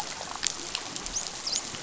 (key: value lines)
label: biophony, dolphin
recorder: SoundTrap 500